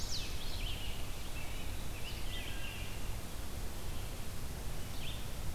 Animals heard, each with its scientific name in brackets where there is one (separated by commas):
Red-eyed Vireo (Vireo olivaceus), Wood Thrush (Hylocichla mustelina), Chestnut-sided Warbler (Setophaga pensylvanica)